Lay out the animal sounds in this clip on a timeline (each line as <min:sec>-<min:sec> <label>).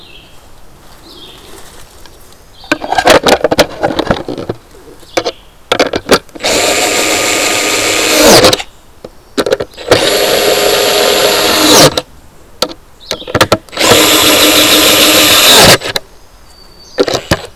0:00.0-0:13.4 Red-eyed Vireo (Vireo olivaceus)
0:15.7-0:17.2 Black-throated Green Warbler (Setophaga virens)